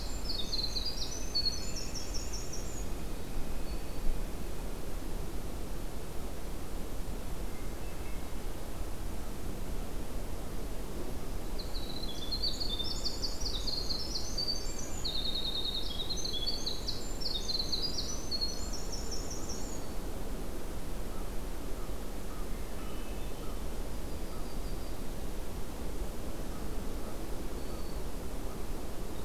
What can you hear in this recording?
Winter Wren, Northern Flicker, Hermit Thrush, Black-throated Green Warbler, American Crow, Yellow-rumped Warbler